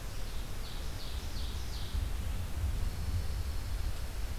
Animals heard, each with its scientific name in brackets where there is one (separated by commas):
Ovenbird (Seiurus aurocapilla), Pine Warbler (Setophaga pinus)